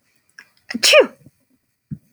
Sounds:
Sneeze